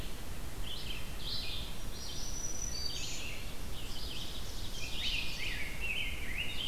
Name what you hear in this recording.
Red-eyed Vireo, Black-throated Green Warbler, Ovenbird, Rose-breasted Grosbeak